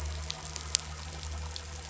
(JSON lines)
{"label": "anthrophony, boat engine", "recorder": "SoundTrap 500"}